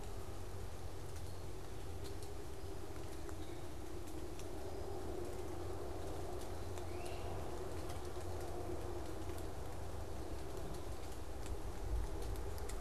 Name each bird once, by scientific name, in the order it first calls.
Myiarchus crinitus